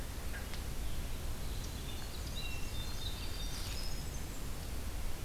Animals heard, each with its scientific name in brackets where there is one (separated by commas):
Black-and-white Warbler (Mniotilta varia), Hermit Thrush (Catharus guttatus)